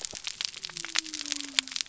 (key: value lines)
label: biophony
recorder: SoundTrap 300